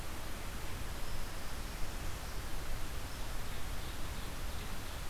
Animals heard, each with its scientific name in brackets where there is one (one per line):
Ovenbird (Seiurus aurocapilla)